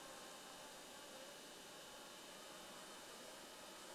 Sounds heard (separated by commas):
insect buzz